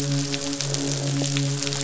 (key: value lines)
label: biophony, midshipman
recorder: SoundTrap 500

label: biophony
recorder: SoundTrap 500

label: biophony, croak
recorder: SoundTrap 500